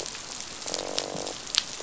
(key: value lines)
label: biophony, croak
recorder: SoundTrap 500